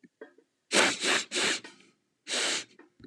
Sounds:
Sniff